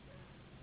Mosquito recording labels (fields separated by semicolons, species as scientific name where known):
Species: Anopheles gambiae s.s.; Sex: female; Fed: unfed; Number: one; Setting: insect culture